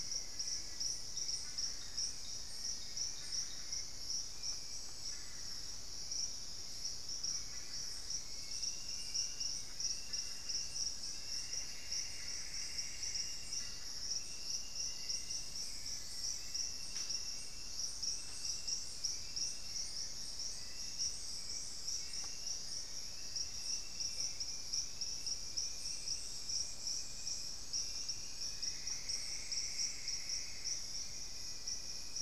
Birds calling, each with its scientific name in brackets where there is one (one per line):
Plumbeous Antbird (Myrmelastes hyperythrus)
Long-billed Woodcreeper (Nasica longirostris)
Hauxwell's Thrush (Turdus hauxwelli)
Black-faced Antthrush (Formicarius analis)